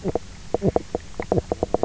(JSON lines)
{"label": "biophony, knock croak", "recorder": "SoundTrap 300"}